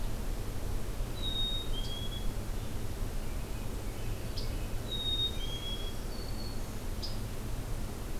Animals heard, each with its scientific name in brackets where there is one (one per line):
Black-throated Green Warbler (Setophaga virens)
Black-capped Chickadee (Poecile atricapillus)
Scarlet Tanager (Piranga olivacea)
American Robin (Turdus migratorius)